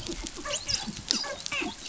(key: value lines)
label: biophony, dolphin
recorder: SoundTrap 500